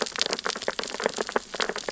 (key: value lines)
label: biophony, sea urchins (Echinidae)
recorder: SoundTrap 600 or HydroMoth